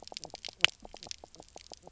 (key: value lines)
label: biophony, knock croak
recorder: SoundTrap 300